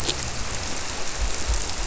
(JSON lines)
{"label": "biophony", "recorder": "SoundTrap 300"}